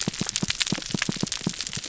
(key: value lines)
label: biophony
recorder: SoundTrap 300